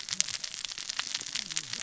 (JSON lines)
{"label": "biophony, cascading saw", "recorder": "SoundTrap 600 or HydroMoth"}